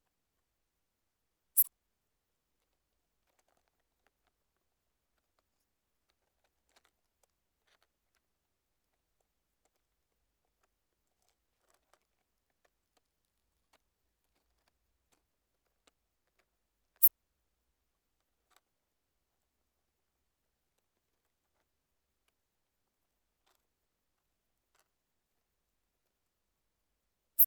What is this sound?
Steropleurus brunnerii, an orthopteran